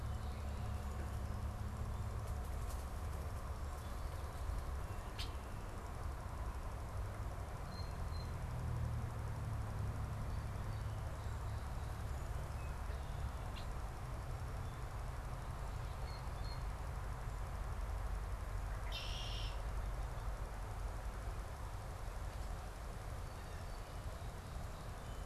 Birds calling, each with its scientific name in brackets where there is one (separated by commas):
Song Sparrow (Melospiza melodia), Red-winged Blackbird (Agelaius phoeniceus), Blue Jay (Cyanocitta cristata)